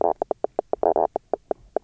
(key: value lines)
label: biophony, knock croak
recorder: SoundTrap 300